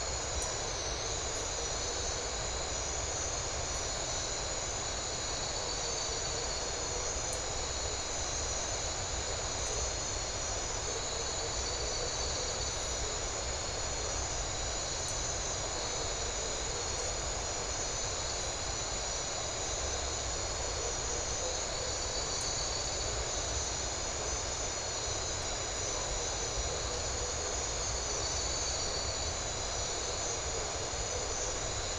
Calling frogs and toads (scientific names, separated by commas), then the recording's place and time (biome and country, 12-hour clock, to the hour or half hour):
none
Atlantic Forest, Brazil, ~11pm